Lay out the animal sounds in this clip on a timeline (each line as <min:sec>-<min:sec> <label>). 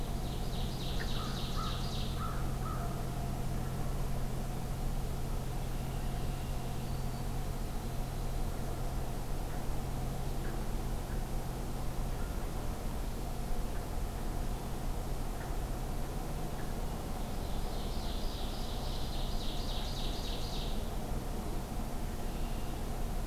0:00.0-0:02.2 Ovenbird (Seiurus aurocapilla)
0:01.1-0:02.9 American Crow (Corvus brachyrhynchos)
0:05.6-0:06.8 Red-winged Blackbird (Agelaius phoeniceus)
0:06.7-0:07.3 Black-throated Green Warbler (Setophaga virens)
0:12.0-0:12.5 Wild Turkey (Meleagris gallopavo)
0:17.4-0:20.9 Ovenbird (Seiurus aurocapilla)
0:22.1-0:22.9 Red-winged Blackbird (Agelaius phoeniceus)